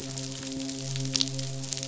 {"label": "biophony, midshipman", "recorder": "SoundTrap 500"}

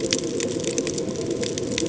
{"label": "ambient", "recorder": "HydroMoth"}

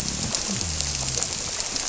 {"label": "biophony", "recorder": "SoundTrap 300"}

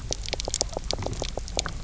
{"label": "biophony, knock croak", "recorder": "SoundTrap 300"}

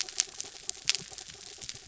{"label": "anthrophony, mechanical", "recorder": "SoundTrap 300"}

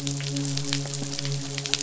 {"label": "biophony, midshipman", "recorder": "SoundTrap 500"}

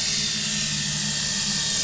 {"label": "anthrophony, boat engine", "recorder": "SoundTrap 500"}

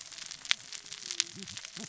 {"label": "biophony, cascading saw", "recorder": "SoundTrap 600 or HydroMoth"}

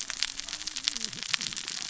{"label": "biophony, cascading saw", "recorder": "SoundTrap 600 or HydroMoth"}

